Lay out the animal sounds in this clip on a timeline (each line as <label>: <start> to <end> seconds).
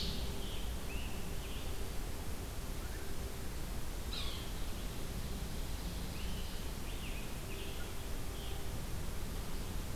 Ovenbird (Seiurus aurocapilla): 0.0 to 0.5 seconds
Scarlet Tanager (Piranga olivacea): 0.0 to 2.0 seconds
Yellow-bellied Sapsucker (Sphyrapicus varius): 4.0 to 4.5 seconds
Scarlet Tanager (Piranga olivacea): 6.0 to 8.7 seconds